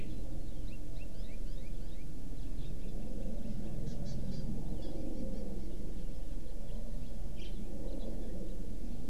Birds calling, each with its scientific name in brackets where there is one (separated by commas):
Hawaii Amakihi (Chlorodrepanis virens), House Finch (Haemorhous mexicanus)